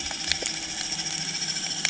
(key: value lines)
label: anthrophony, boat engine
recorder: HydroMoth